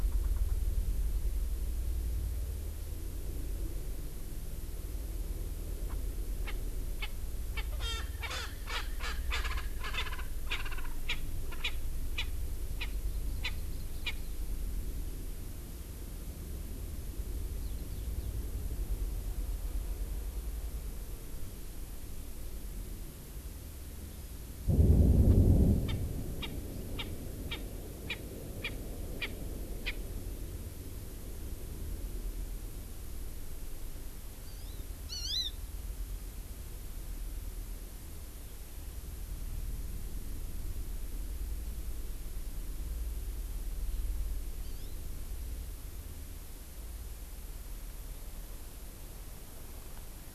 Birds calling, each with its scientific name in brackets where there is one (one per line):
Eurasian Skylark (Alauda arvensis)
Hawaii Amakihi (Chlorodrepanis virens)
Erckel's Francolin (Pternistis erckelii)